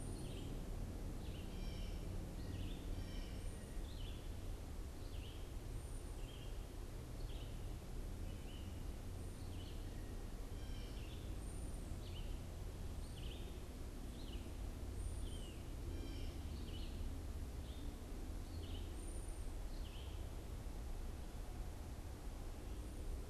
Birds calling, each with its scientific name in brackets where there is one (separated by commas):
Blue Jay (Cyanocitta cristata), Red-eyed Vireo (Vireo olivaceus), unidentified bird